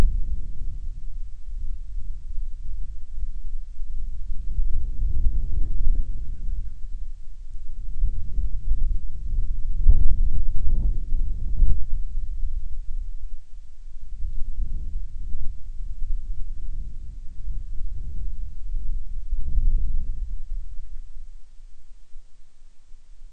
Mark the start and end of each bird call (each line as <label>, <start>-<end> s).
Band-rumped Storm-Petrel (Hydrobates castro), 5.8-6.8 s